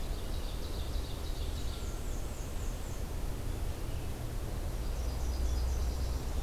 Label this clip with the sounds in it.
Ovenbird, Black-and-white Warbler, Nashville Warbler